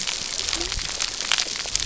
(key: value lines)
label: biophony
recorder: SoundTrap 300